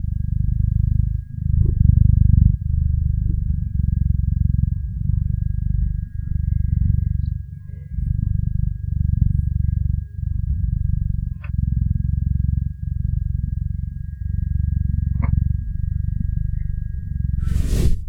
Are there several loud sounds?
no